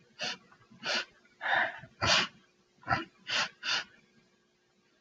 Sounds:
Sniff